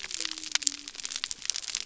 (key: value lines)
label: biophony
recorder: SoundTrap 300